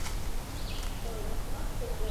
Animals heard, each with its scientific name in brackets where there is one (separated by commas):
Red-eyed Vireo (Vireo olivaceus)